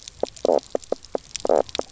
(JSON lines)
{"label": "biophony, knock croak", "recorder": "SoundTrap 300"}